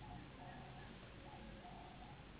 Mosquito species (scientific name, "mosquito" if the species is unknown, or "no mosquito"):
Anopheles gambiae s.s.